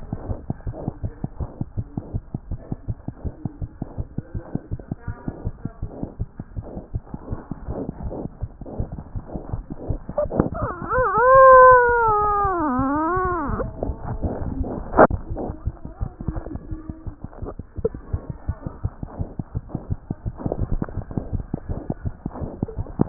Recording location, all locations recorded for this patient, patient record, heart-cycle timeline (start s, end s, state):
pulmonary valve (PV)
aortic valve (AV)+pulmonary valve (PV)
#Age: Infant
#Sex: Female
#Height: 65.0 cm
#Weight: 7.6 kg
#Pregnancy status: False
#Murmur: Absent
#Murmur locations: nan
#Most audible location: nan
#Systolic murmur timing: nan
#Systolic murmur shape: nan
#Systolic murmur grading: nan
#Systolic murmur pitch: nan
#Systolic murmur quality: nan
#Diastolic murmur timing: nan
#Diastolic murmur shape: nan
#Diastolic murmur grading: nan
#Diastolic murmur pitch: nan
#Diastolic murmur quality: nan
#Outcome: Normal
#Campaign: 2015 screening campaign
0.00	0.91	unannotated
0.91	1.00	diastole
1.00	1.11	S1
1.11	1.21	systole
1.21	1.32	S2
1.32	1.37	diastole
1.37	1.48	S1
1.48	1.58	systole
1.58	1.66	S2
1.66	1.75	diastole
1.75	1.84	S1
1.84	1.95	systole
1.95	2.01	S2
2.01	2.12	diastole
2.12	2.22	S1
2.22	2.32	systole
2.32	2.42	S2
2.42	2.49	diastole
2.49	2.56	S1
2.56	2.70	systole
2.70	2.75	S2
2.75	2.86	diastole
2.86	2.94	S1
2.94	3.06	systole
3.06	3.12	S2
3.12	3.23	diastole
3.23	3.34	S1
3.34	3.42	systole
3.42	3.52	S2
3.52	3.59	diastole
3.59	3.68	S1
3.68	3.80	systole
3.80	3.86	S2
3.86	3.96	diastole
3.96	4.05	S1
4.05	4.15	systole
4.15	4.23	S2
4.23	4.33	diastole
4.33	4.44	S1
4.44	4.52	systole
4.52	4.62	S2
4.62	4.69	diastole
4.69	4.78	S1
4.78	4.88	systole
4.88	4.96	S2
4.96	5.04	diastole
5.04	5.14	S1
5.14	5.25	systole
5.25	5.32	S2
5.32	5.42	diastole
5.42	5.54	S1
5.54	5.62	systole
5.62	5.72	S2
5.72	5.80	diastole
5.80	5.89	S1
5.89	5.99	systole
5.99	6.09	S2
6.09	6.19	diastole
6.19	6.25	S1
6.25	6.36	systole
6.36	6.44	S2
6.44	6.56	diastole
6.56	6.66	S1
6.66	6.74	systole
6.74	6.84	S2
6.84	6.91	diastole
6.91	7.02	S1
7.02	7.10	systole
7.10	7.19	S2
7.19	7.29	diastole
7.29	7.37	S1
7.37	7.49	systole
7.49	7.55	S2
7.55	7.66	diastole
7.66	7.74	S1
7.74	7.86	systole
7.86	7.95	S2
7.95	8.02	diastole
8.02	23.09	unannotated